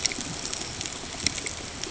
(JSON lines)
{"label": "ambient", "recorder": "HydroMoth"}